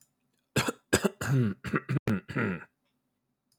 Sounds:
Throat clearing